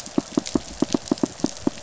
{"label": "biophony, pulse", "recorder": "SoundTrap 500"}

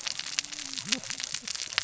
{"label": "biophony, cascading saw", "recorder": "SoundTrap 600 or HydroMoth"}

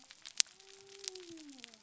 {"label": "biophony", "recorder": "SoundTrap 300"}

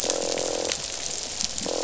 {"label": "biophony, croak", "recorder": "SoundTrap 500"}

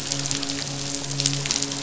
{"label": "biophony, midshipman", "recorder": "SoundTrap 500"}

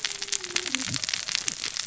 {"label": "biophony, cascading saw", "recorder": "SoundTrap 600 or HydroMoth"}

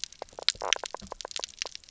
{"label": "biophony, knock croak", "recorder": "SoundTrap 300"}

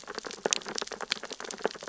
{"label": "biophony, sea urchins (Echinidae)", "recorder": "SoundTrap 600 or HydroMoth"}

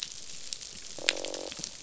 {"label": "biophony, croak", "recorder": "SoundTrap 500"}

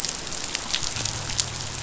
{"label": "biophony", "recorder": "SoundTrap 500"}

